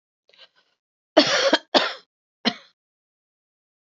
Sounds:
Cough